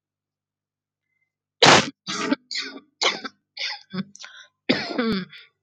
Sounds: Cough